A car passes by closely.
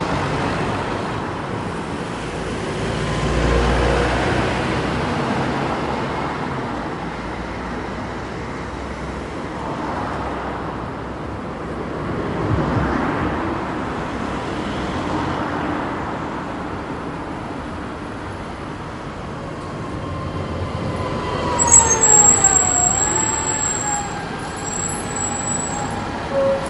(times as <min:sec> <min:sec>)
0:02.7 0:06.7, 0:09.5 0:16.5